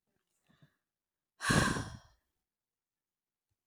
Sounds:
Sigh